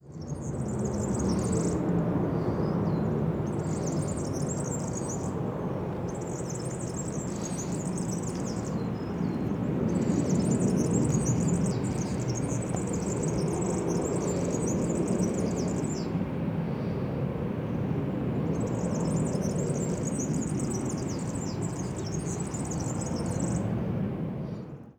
What kind of animal can be heard here?
bird